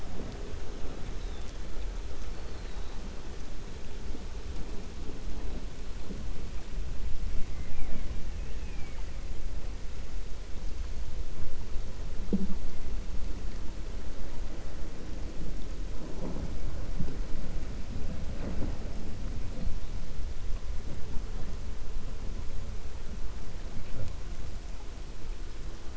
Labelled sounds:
8.3	9.1	killer whale, 0.89 to 2.9 kHz

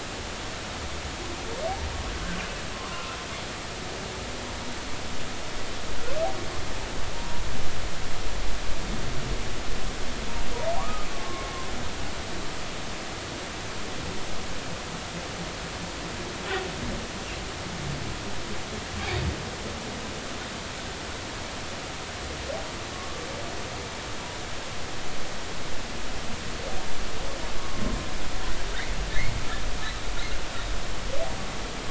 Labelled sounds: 2.7	3.1	humpback whale, 0.99 to 1.2 kHz
7.1	7.4	humpback whale, 0.90 to 0.99 kHz
10.8	11.5	humpback whale, 0.90 to 1.3 kHz
22.9	23.3	humpback whale, 1.1 to 1.2 kHz

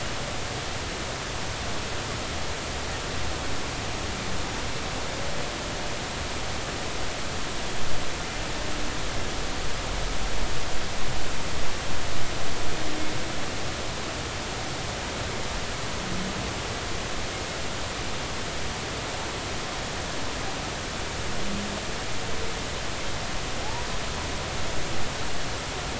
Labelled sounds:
23.6	23.9	humpback whale, 0.80 to 1.0 kHz

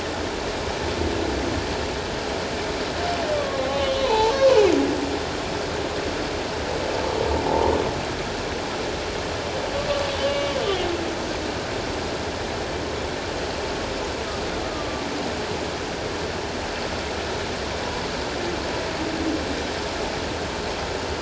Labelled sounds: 3.3	4.7	humpback whale, 0.78 to 4.1 kHz
7.5	7.7	humpback whale, 0.78 to 1.1 kHz
10.3	10.9	humpback whale, 2.8 to 3.1 kHz
14.6	15.1	humpback whale, 1.1 to 1.3 kHz

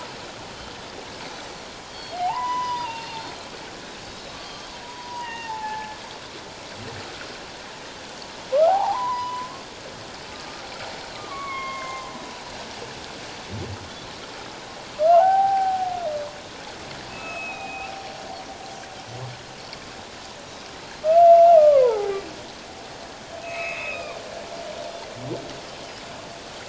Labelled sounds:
1.2	2.3	Pacific white-sided dolphin, 3.1 to 6.1 kHz
2.1	3.2	humpback whale, 0.78 to 5.0 kHz
4.1	4.7	Pacific white-sided dolphin, 3.8 to 5.3 kHz
4.8	6.0	humpback whale, 0.81 to 3.8 kHz
8.5	9.5	humpback whale, 0.78 to 1.6 kHz
11.1	12.1	humpback whale, 0.94 to 3.3 kHz
12.3	12.6	Pacific white-sided dolphin, 4.1 to 4.2 kHz
15.1	15.9	humpback whale, 0.78 to 1.6 kHz
17.1	17.9	humpback whale, 1.2 to 3.8 kHz
21.3	22.1	humpback whale, 0.78 to 2.9 kHz
23.4	24.2	humpback whale, 1.0 to 4.2 kHz

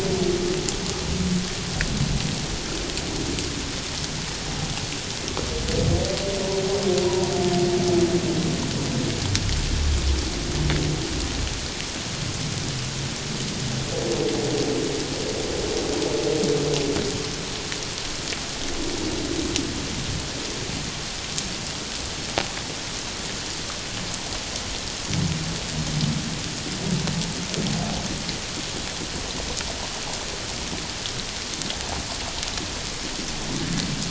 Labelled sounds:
7.0	7.3	humpback whale, 0.91 to 1.0 kHz

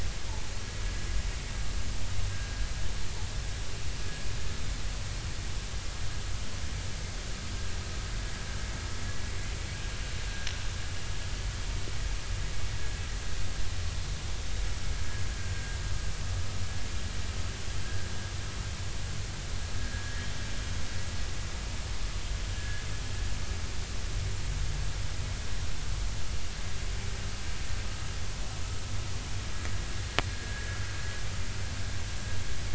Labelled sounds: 15.4	15.8	vessel noise, 1.57 to 1.63 kHz
17.8	18.1	vessel noise, 1.5 to 1.7 kHz
19.8	20.2	vessel noise, 1.6 to 1.7 kHz
22.6	22.8	vessel noise, 1.6 to 1.8 kHz
30.3	30.7	vessel noise, 1.6 to 1.7 kHz

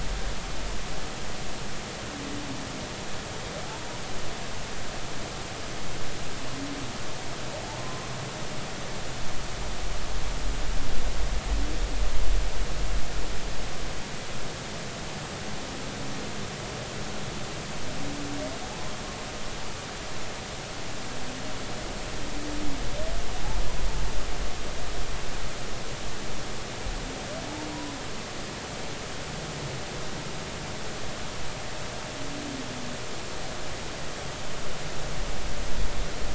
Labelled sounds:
3.7	4.0	humpback whale, 0.80 to 1.0 kHz
7.8	8.1	humpback whale, 0.99 to 1.2 kHz

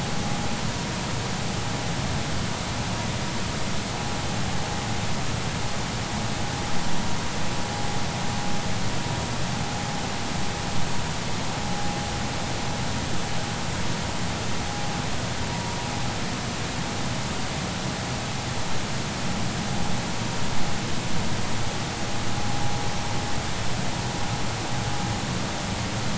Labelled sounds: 15.5	15.8	vessel noise, 0.90 to 0.99 kHz

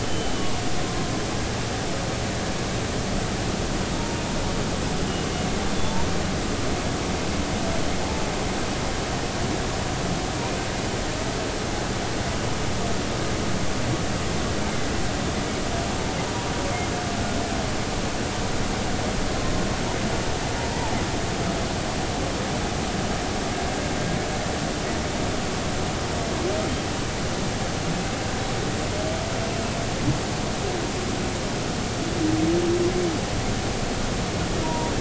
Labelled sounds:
0.0	0.3	humpback whale, 2.9 to 3.1 kHz
34.6	34.9	humpback whale, 0.90 to 1.0 kHz

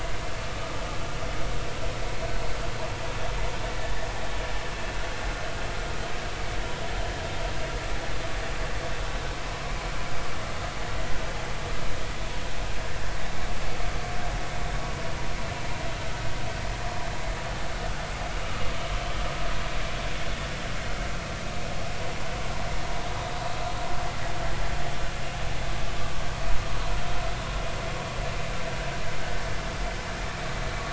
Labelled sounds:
9.4	9.7	vessel noise, 0.99 to 1.2 kHz

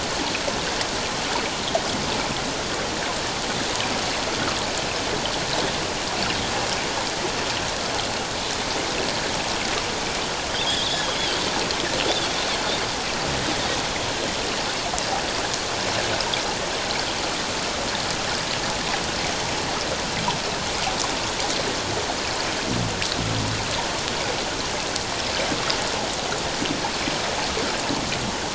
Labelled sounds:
10.7	11.1	Pacific white-sided dolphin, 3.1 to 3.9 kHz
12.1	12.4	Pacific white-sided dolphin, 3.3 to 3.7 kHz

